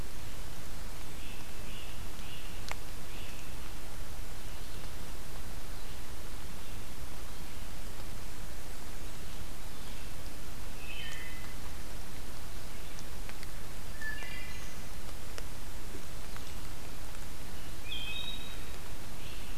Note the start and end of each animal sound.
0.0s-19.6s: Red-eyed Vireo (Vireo olivaceus)
1.0s-3.6s: Great Crested Flycatcher (Myiarchus crinitus)
10.6s-11.7s: Wood Thrush (Hylocichla mustelina)
13.6s-14.9s: Black-throated Green Warbler (Setophaga virens)
13.8s-15.0s: Wood Thrush (Hylocichla mustelina)
17.6s-18.8s: Wood Thrush (Hylocichla mustelina)
19.0s-19.6s: Great Crested Flycatcher (Myiarchus crinitus)

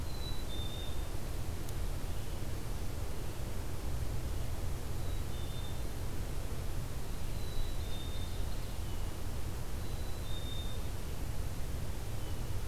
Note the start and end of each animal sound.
0.0s-1.2s: Black-capped Chickadee (Poecile atricapillus)
4.9s-5.9s: Black-capped Chickadee (Poecile atricapillus)
7.2s-8.2s: Black-capped Chickadee (Poecile atricapillus)
7.2s-8.8s: Ovenbird (Seiurus aurocapilla)
9.8s-10.9s: Black-capped Chickadee (Poecile atricapillus)

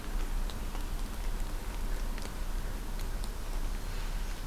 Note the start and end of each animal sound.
3.2s-4.5s: Northern Parula (Setophaga americana)

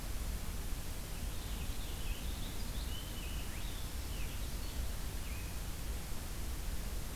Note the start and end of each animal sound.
0.8s-5.6s: Purple Finch (Haemorhous purpureus)

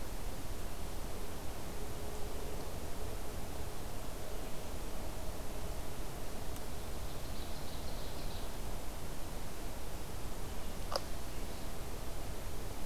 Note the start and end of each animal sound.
6.5s-8.6s: Ovenbird (Seiurus aurocapilla)

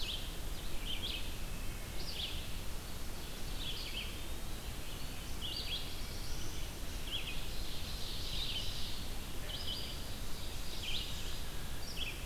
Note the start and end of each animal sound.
0.0s-12.3s: Red-eyed Vireo (Vireo olivaceus)
2.4s-4.1s: Ovenbird (Seiurus aurocapilla)
3.6s-4.8s: Eastern Wood-Pewee (Contopus virens)
5.4s-6.7s: Black-throated Blue Warbler (Setophaga caerulescens)
7.1s-11.5s: Ovenbird (Seiurus aurocapilla)

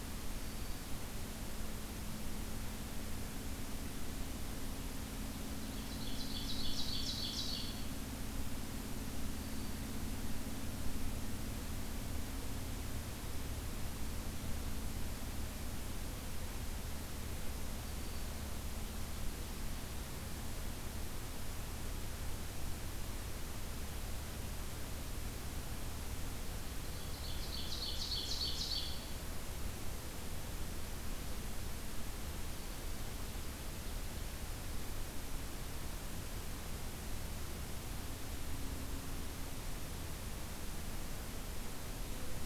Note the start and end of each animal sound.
0.2s-1.0s: Black-throated Green Warbler (Setophaga virens)
5.6s-7.9s: Ovenbird (Seiurus aurocapilla)
9.2s-10.0s: Black-throated Green Warbler (Setophaga virens)
17.7s-18.4s: Black-throated Green Warbler (Setophaga virens)
26.9s-29.1s: Ovenbird (Seiurus aurocapilla)

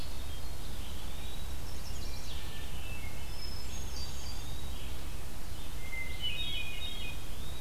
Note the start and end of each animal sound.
0.0s-7.6s: Red-eyed Vireo (Vireo olivaceus)
0.6s-1.5s: Eastern Wood-Pewee (Contopus virens)
1.4s-2.4s: Chestnut-sided Warbler (Setophaga pensylvanica)
2.0s-4.5s: Hermit Thrush (Catharus guttatus)
3.9s-5.0s: Eastern Wood-Pewee (Contopus virens)
5.8s-7.2s: Hermit Thrush (Catharus guttatus)
7.0s-7.6s: Eastern Wood-Pewee (Contopus virens)

